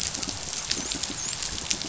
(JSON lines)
{"label": "biophony, dolphin", "recorder": "SoundTrap 500"}